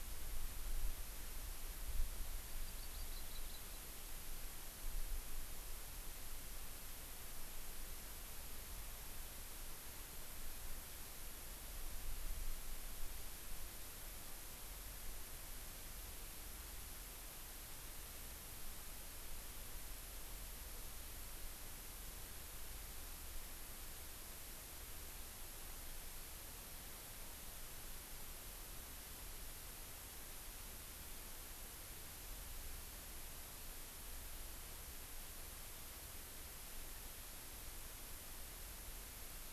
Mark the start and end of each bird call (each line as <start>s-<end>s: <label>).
2.5s-3.8s: Hawaii Amakihi (Chlorodrepanis virens)